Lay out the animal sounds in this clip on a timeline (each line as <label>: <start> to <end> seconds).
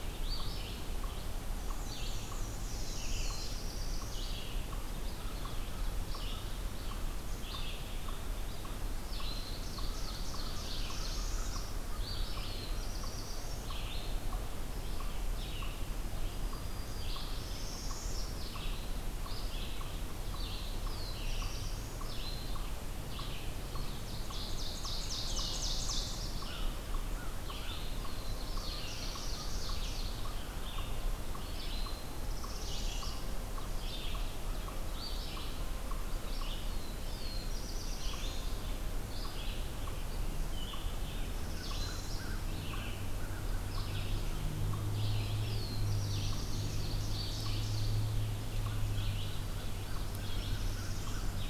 Red-eyed Vireo (Vireo olivaceus): 0.0 to 51.5 seconds
unknown mammal: 0.0 to 51.5 seconds
Black-and-white Warbler (Mniotilta varia): 1.7 to 4.3 seconds
Northern Parula (Setophaga americana): 2.5 to 3.7 seconds
Ovenbird (Seiurus aurocapilla): 8.9 to 11.4 seconds
Northern Parula (Setophaga americana): 10.7 to 11.7 seconds
Black-throated Blue Warbler (Setophaga caerulescens): 11.7 to 13.8 seconds
Black-throated Green Warbler (Setophaga virens): 16.1 to 17.5 seconds
Northern Parula (Setophaga americana): 17.3 to 18.4 seconds
Black-throated Blue Warbler (Setophaga caerulescens): 20.3 to 22.2 seconds
Ovenbird (Seiurus aurocapilla): 23.4 to 26.8 seconds
Black-throated Blue Warbler (Setophaga caerulescens): 27.4 to 29.9 seconds
Ovenbird (Seiurus aurocapilla): 28.4 to 30.3 seconds
Northern Parula (Setophaga americana): 32.1 to 33.2 seconds
Black-throated Blue Warbler (Setophaga caerulescens): 36.2 to 39.0 seconds
Northern Parula (Setophaga americana): 41.1 to 42.3 seconds
Black-throated Blue Warbler (Setophaga caerulescens): 44.8 to 46.6 seconds
Ovenbird (Seiurus aurocapilla): 46.0 to 48.1 seconds
Northern Parula (Setophaga americana): 50.2 to 51.4 seconds